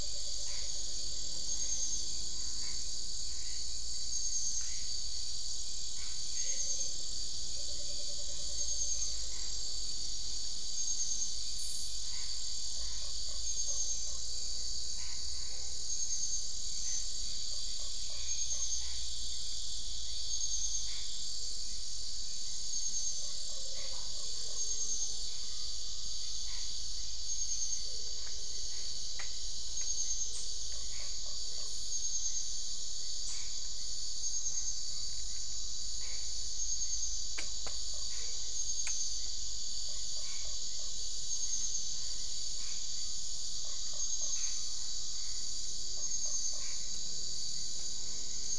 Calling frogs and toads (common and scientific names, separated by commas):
Usina tree frog (Boana lundii)